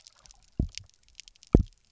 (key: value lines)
label: biophony, double pulse
recorder: SoundTrap 300